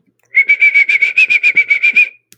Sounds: Sniff